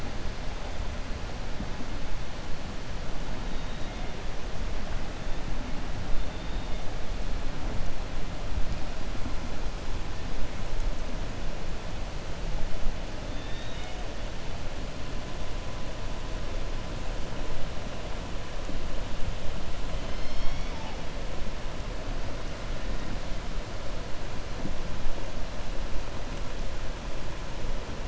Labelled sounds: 13.3	14.0	killer whale, southern resident, 1.5 to 4.6 kHz

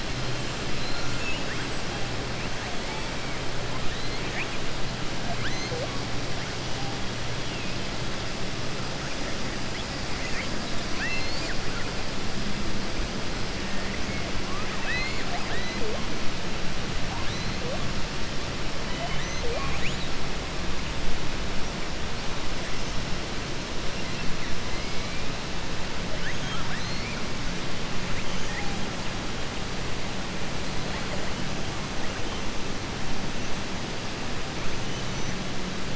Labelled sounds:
0.7	1.6	killer whale, southern resident, 1.5 to 7.7 kHz
3.9	4.6	killer whale, southern resident, 1.7 to 4.2 kHz
10.9	11.6	killer whale, southern resident, 1.0 to 7.9 kHz
14.4	15.7	killer whale, southern resident, 0.72 to 4.4 kHz
26.1	26.8	killer whale, southern resident, 0.74 to 3.5 kHz
28.1	28.7	killer whale, southern resident, 0.87 to 3.2 kHz
34.9	35.4	killer whale, southern resident, 5.3 to 6.7 kHz

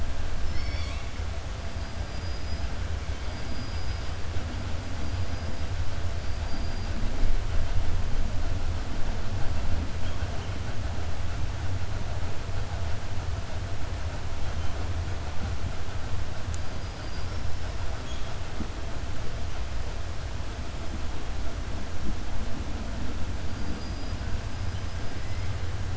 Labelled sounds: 3.2	4.0	killer whale, 4.5 to 5.9 kHz
16.8	17.4	killer whale, 4.5 to 5.5 kHz
23.5	24.2	killer whale, 4.7 to 5.0 kHz

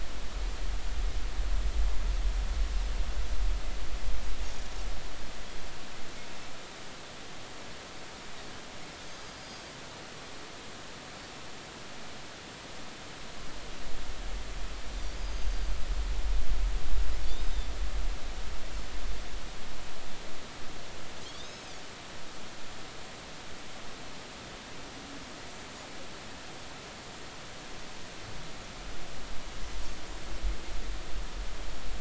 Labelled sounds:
9.1	9.6	Pacific white-sided dolphin, 4.7 to 6.5 kHz
15.2	15.8	Pacific white-sided dolphin, 4.6 to 6.6 kHz
17.3	17.7	Pacific white-sided dolphin, 3.4 to 3.8 kHz
21.2	21.7	Pacific white-sided dolphin, 3.1 to 6.6 kHz

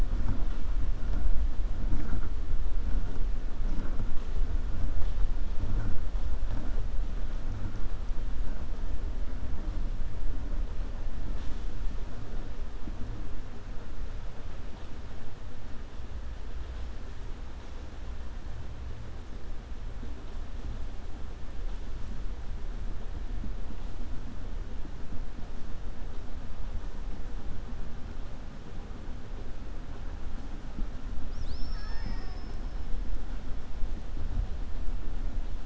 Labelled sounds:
31.2	32.6	killer whale, 0.76 to 7.4 kHz

